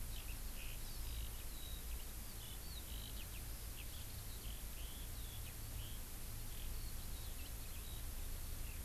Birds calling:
Hawaii Amakihi (Chlorodrepanis virens), Eurasian Skylark (Alauda arvensis)

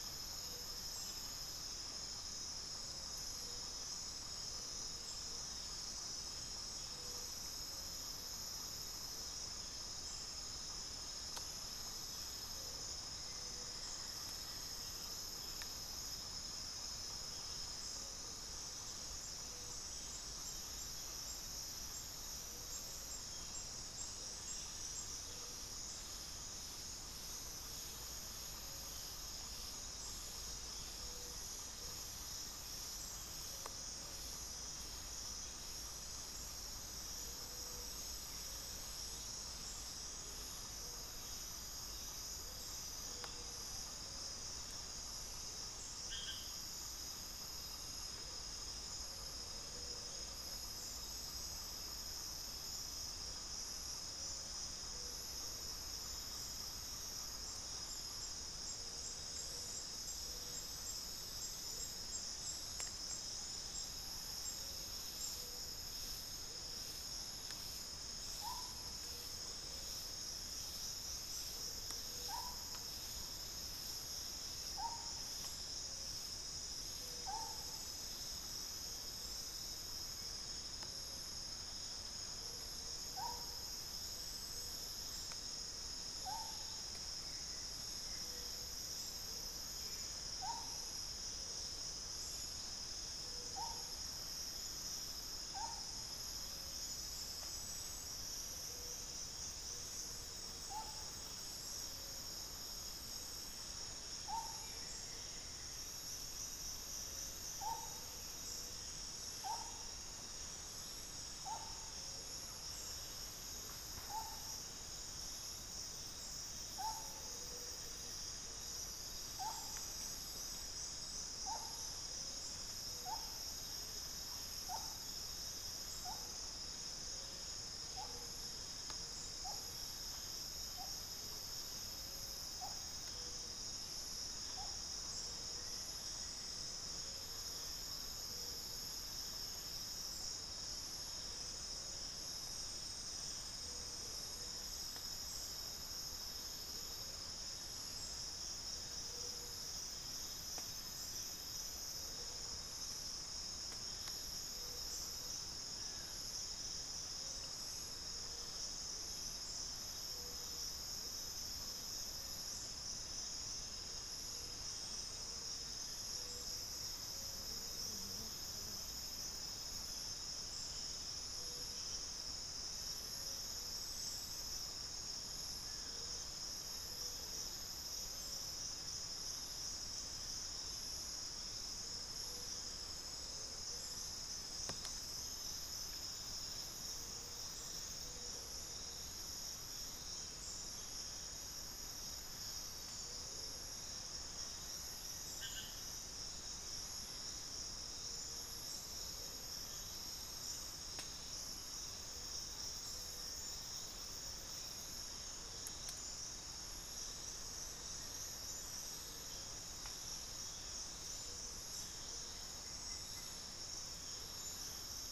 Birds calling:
Amazonian Barred-Woodcreeper (Dendrocolaptes certhia), unidentified bird, Amazonian Motmot (Momotus momota), Buff-throated Woodcreeper (Xiphorhynchus guttatus), Black-faced Antthrush (Formicarius analis)

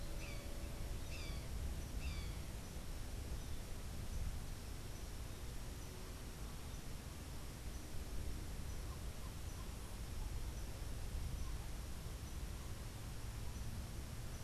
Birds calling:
Brown Jay (Psilorhinus morio)

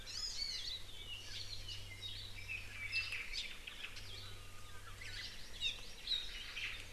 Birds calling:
Japanese Bush Warbler (Horornis diphone), Hawaii Creeper (Loxops mana), Hawaii Akepa (Loxops coccineus), Omao (Myadestes obscurus), Apapane (Himatione sanguinea), Hawaii Amakihi (Chlorodrepanis virens), Iiwi (Drepanis coccinea)

